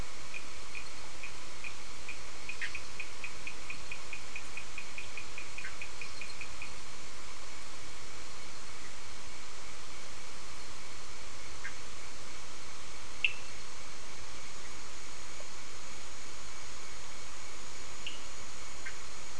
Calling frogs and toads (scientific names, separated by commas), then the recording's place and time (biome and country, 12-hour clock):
Sphaenorhynchus surdus
Atlantic Forest, Brazil, 7:15pm